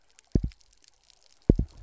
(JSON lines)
{"label": "biophony, double pulse", "recorder": "SoundTrap 300"}